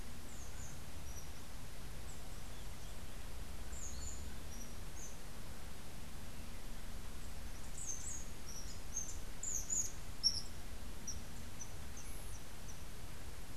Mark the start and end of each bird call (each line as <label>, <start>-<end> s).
Rufous-tailed Hummingbird (Amazilia tzacatl), 7.4-13.0 s